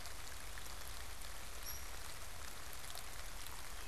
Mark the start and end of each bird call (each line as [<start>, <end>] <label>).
[1.39, 3.88] Hairy Woodpecker (Dryobates villosus)